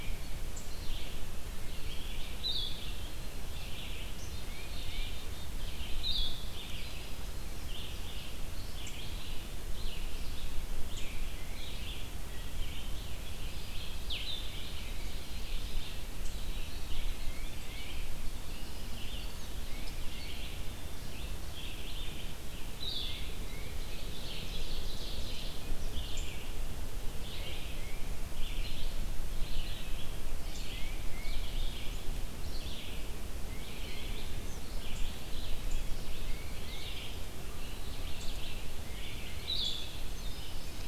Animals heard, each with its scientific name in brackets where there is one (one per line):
Ovenbird (Seiurus aurocapilla)
Tufted Titmouse (Baeolophus bicolor)
Red-eyed Vireo (Vireo olivaceus)
Black-capped Chickadee (Poecile atricapillus)
Blue-headed Vireo (Vireo solitarius)